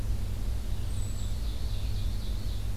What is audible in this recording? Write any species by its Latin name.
Spinus tristis, Vireo olivaceus, Seiurus aurocapilla, Catharus guttatus